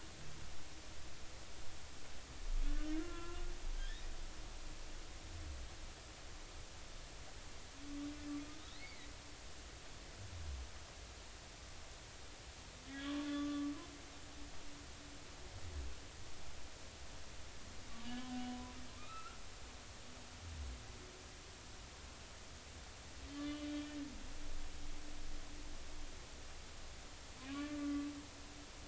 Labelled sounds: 2.7	3.4	humpback whale, 0.96 to 1.8 kHz
8.8	9.1	humpback whale, 1.9 to 2.4 kHz
12.9	13.7	humpback whale, 1.0 to 3.4 kHz
18.0	19.4	humpback whale, 0.96 to 3.1 kHz
23.3	23.9	humpback whale, 1.7 to 3.3 kHz
27.5	28.1	humpback whale, 1.1 to 1.2 kHz

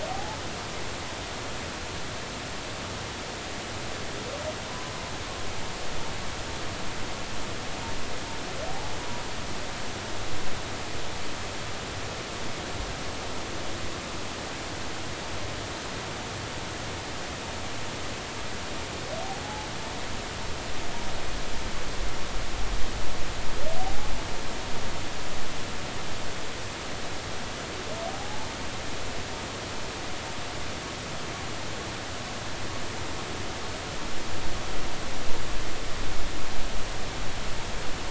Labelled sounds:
0.1	0.4	humpback whale, 0.80 to 0.93 kHz
19.4	19.7	humpback whale, 0.80 to 0.90 kHz
23.8	24.1	humpback whale, 0.80 to 0.90 kHz
28.1	28.5	humpback whale, 0.80 to 0.93 kHz

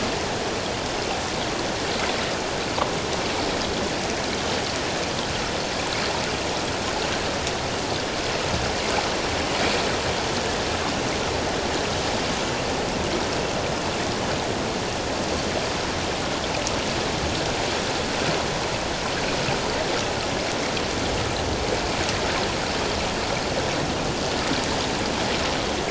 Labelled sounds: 2.1	2.3	water noise, 3.7 to 4.0 kHz

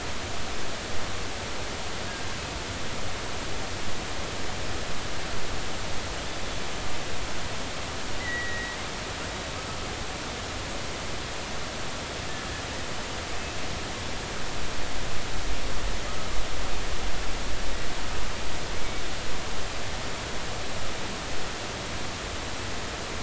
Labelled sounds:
8.2	8.8	killer whale, offshore, 1.8 to 2.1 kHz

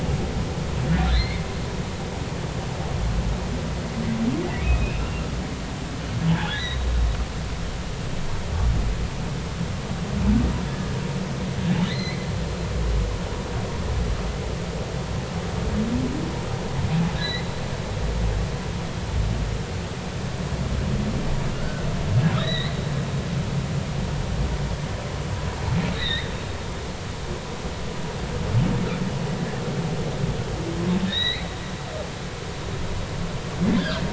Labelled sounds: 1.0	1.4	humpback whale, 1.9 to 4.4 kHz
4.6	5.0	humpback whale, 2.4 to 2.8 kHz
6.3	6.9	humpback whale, 1.4 to 4.0 kHz
11.9	12.2	humpback whale, 1.9 to 4.3 kHz
17.2	17.5	humpback whale, 1.9 to 4.2 kHz
21.5	22.7	humpback whale, 1.3 to 4.1 kHz
25.9	26.3	humpback whale, 1.7 to 4.3 kHz
31.1	31.5	humpback whale, 1.7 to 4.4 kHz
33.8	34.0	humpback whale, 1.2 to 1.8 kHz

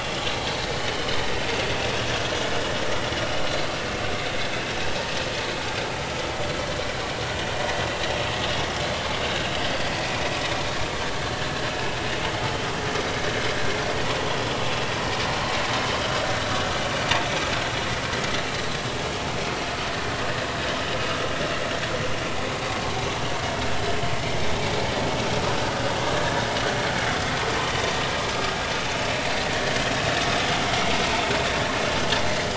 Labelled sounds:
0.8	1.1	vessel noise, 2.9 to 3.1 kHz
8.6	8.8	vessel noise, 5.1 to 5.4 kHz
10.0	10.3	vessel noise, 2.3 to 2.6 kHz
14.3	14.6	vessel noise, 3.3 to 3.4 kHz
29.5	29.7	vessel noise, 1.7 to 2.0 kHz

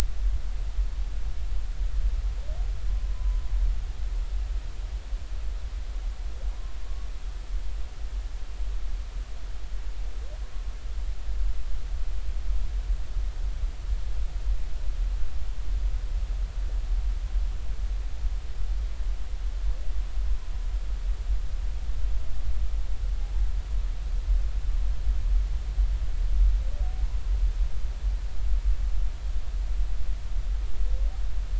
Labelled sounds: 3.1	3.4	humpback whale, 0.90 to 1.1 kHz

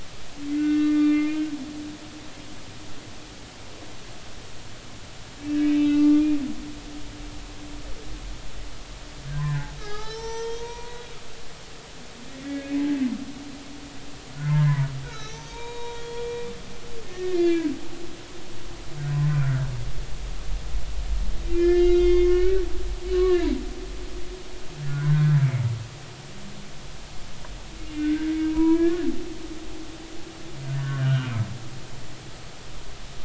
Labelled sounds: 0.5	1.4	humpback whale, 1.1 to 2.8 kHz
5.7	6.2	humpback whale, 1.1 to 2.7 kHz
9.4	11.0	humpback whale, 0.80 to 6.0 kHz
12.4	12.8	humpback whale, 1.6 to 2.3 kHz
14.3	17.7	humpback whale, 0.86 to 6.5 kHz
19.2	19.7	humpback whale, 1.3 to 1.7 kHz
21.5	22.7	humpback whale, 1.4 to 5.0 kHz
23.0	23.5	humpback whale, 1.6 to 4.1 kHz
24.9	25.6	humpback whale, 1.4 to 2.4 kHz
27.9	29.1	humpback whale, 0.90 to 2.8 kHz
30.7	31.3	humpback whale, 1.3 to 1.8 kHz

